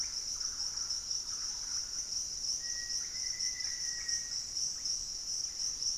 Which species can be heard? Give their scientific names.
Campylorhynchus turdinus, Psarocolius angustifrons, Formicarius analis, unidentified bird